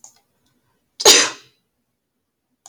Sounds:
Sneeze